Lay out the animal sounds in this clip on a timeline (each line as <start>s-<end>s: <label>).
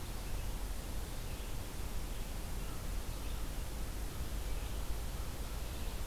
0.0s-6.1s: Red-eyed Vireo (Vireo olivaceus)